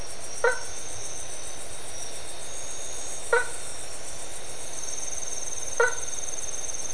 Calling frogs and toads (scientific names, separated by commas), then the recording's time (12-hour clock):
Boana faber
2:30am